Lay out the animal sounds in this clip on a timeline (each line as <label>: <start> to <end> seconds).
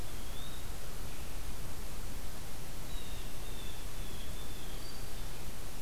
Eastern Wood-Pewee (Contopus virens): 0.0 to 0.9 seconds
Blue Jay (Cyanocitta cristata): 2.7 to 4.9 seconds